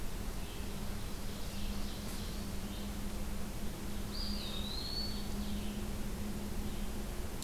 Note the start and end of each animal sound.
0.0s-7.4s: Red-eyed Vireo (Vireo olivaceus)
0.4s-2.8s: Ovenbird (Seiurus aurocapilla)
4.0s-5.4s: Eastern Wood-Pewee (Contopus virens)

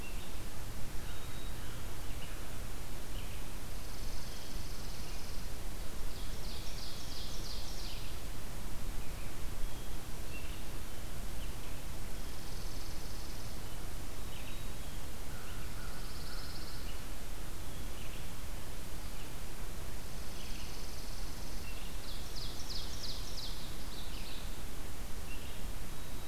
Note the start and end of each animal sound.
0.0s-26.3s: Red-eyed Vireo (Vireo olivaceus)
1.0s-2.1s: Black-capped Chickadee (Poecile atricapillus)
3.5s-5.8s: Chipping Sparrow (Spizella passerina)
5.9s-8.4s: Ovenbird (Seiurus aurocapilla)
11.9s-13.8s: Chipping Sparrow (Spizella passerina)
14.0s-15.3s: Black-capped Chickadee (Poecile atricapillus)
15.2s-17.0s: American Crow (Corvus brachyrhynchos)
15.6s-17.0s: Pine Warbler (Setophaga pinus)
19.7s-22.0s: Chipping Sparrow (Spizella passerina)
21.7s-23.9s: Ovenbird (Seiurus aurocapilla)

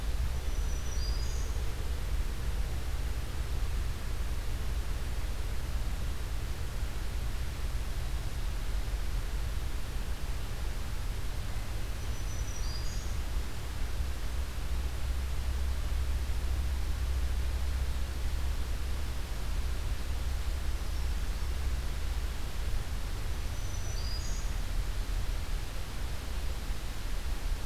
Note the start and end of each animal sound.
0.0s-1.8s: Black-throated Green Warbler (Setophaga virens)
11.7s-13.5s: Black-throated Green Warbler (Setophaga virens)
23.2s-24.7s: Black-throated Green Warbler (Setophaga virens)

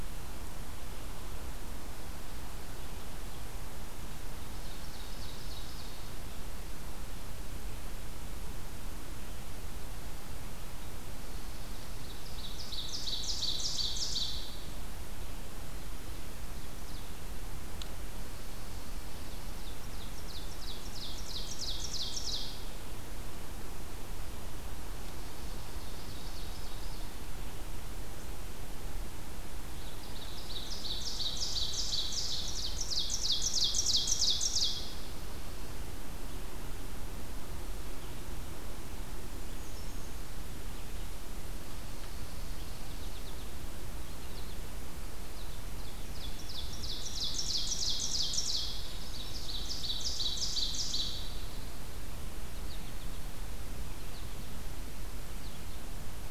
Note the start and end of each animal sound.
4.2s-6.4s: Ovenbird (Seiurus aurocapilla)
11.7s-15.0s: Ovenbird (Seiurus aurocapilla)
16.0s-17.2s: Ovenbird (Seiurus aurocapilla)
19.3s-22.8s: Ovenbird (Seiurus aurocapilla)
25.2s-27.1s: Ovenbird (Seiurus aurocapilla)
29.8s-35.0s: Ovenbird (Seiurus aurocapilla)
39.2s-40.3s: Brown Creeper (Certhia americana)
42.9s-55.7s: American Goldfinch (Spinus tristis)
45.0s-51.3s: Ovenbird (Seiurus aurocapilla)

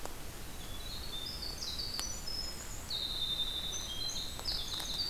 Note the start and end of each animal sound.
0.0s-1.5s: Black-and-white Warbler (Mniotilta varia)
0.4s-5.1s: Winter Wren (Troglodytes hiemalis)
4.4s-5.1s: Northern Waterthrush (Parkesia noveboracensis)

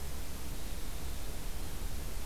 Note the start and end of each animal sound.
0.1s-2.3s: Winter Wren (Troglodytes hiemalis)

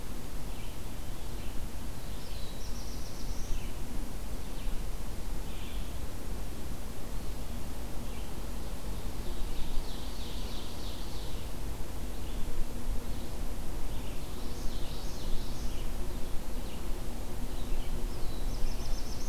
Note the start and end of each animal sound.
0.0s-19.3s: Red-eyed Vireo (Vireo olivaceus)
1.8s-4.0s: Black-throated Blue Warbler (Setophaga caerulescens)
9.0s-11.6s: Ovenbird (Seiurus aurocapilla)
14.0s-15.8s: Common Yellowthroat (Geothlypis trichas)
17.5s-19.3s: Black-throated Blue Warbler (Setophaga caerulescens)

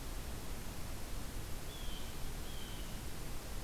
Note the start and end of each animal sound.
1.6s-2.9s: Blue Jay (Cyanocitta cristata)

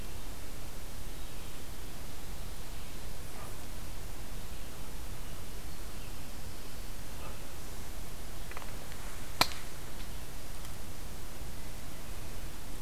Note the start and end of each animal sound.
0.9s-7.5s: Red-eyed Vireo (Vireo olivaceus)

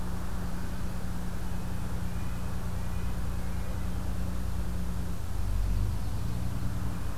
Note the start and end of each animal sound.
1.3s-3.9s: Red-breasted Nuthatch (Sitta canadensis)
5.4s-6.5s: Yellow-rumped Warbler (Setophaga coronata)

